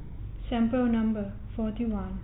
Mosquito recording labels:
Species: no mosquito; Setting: cup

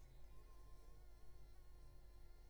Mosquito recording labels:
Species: Anopheles arabiensis; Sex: female; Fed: blood-fed; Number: one; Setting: cup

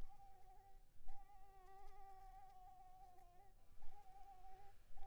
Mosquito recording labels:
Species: Anopheles arabiensis; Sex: female; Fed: unfed; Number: one; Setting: cup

